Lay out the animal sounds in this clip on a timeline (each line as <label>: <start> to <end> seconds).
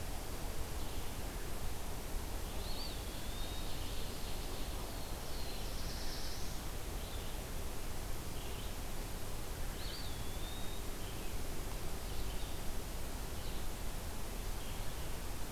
Red-eyed Vireo (Vireo olivaceus): 0.0 to 14.9 seconds
Eastern Wood-Pewee (Contopus virens): 2.4 to 4.0 seconds
Ovenbird (Seiurus aurocapilla): 3.0 to 4.8 seconds
Black-throated Blue Warbler (Setophaga caerulescens): 4.7 to 6.9 seconds
Eastern Wood-Pewee (Contopus virens): 9.6 to 11.1 seconds